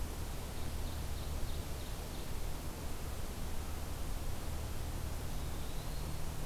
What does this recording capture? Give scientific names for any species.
Seiurus aurocapilla, Contopus virens